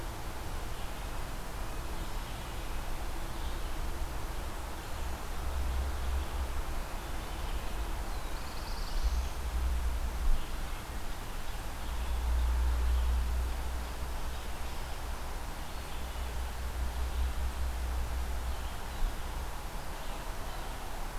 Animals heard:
Black-throated Blue Warbler (Setophaga caerulescens)
Red-eyed Vireo (Vireo olivaceus)

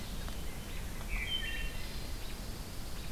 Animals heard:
Pine Warbler (Setophaga pinus)
Wood Thrush (Hylocichla mustelina)

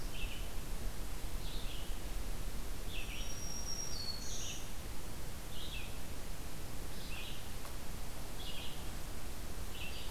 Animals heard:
Black-throated Green Warbler (Setophaga virens)
Red-eyed Vireo (Vireo olivaceus)

